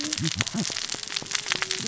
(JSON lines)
{"label": "biophony, cascading saw", "recorder": "SoundTrap 600 or HydroMoth"}